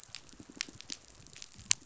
{"label": "biophony, pulse", "recorder": "SoundTrap 500"}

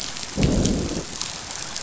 {"label": "biophony, growl", "recorder": "SoundTrap 500"}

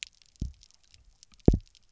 {"label": "biophony, double pulse", "recorder": "SoundTrap 300"}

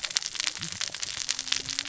{"label": "biophony, cascading saw", "recorder": "SoundTrap 600 or HydroMoth"}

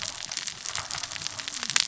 {"label": "biophony, cascading saw", "recorder": "SoundTrap 600 or HydroMoth"}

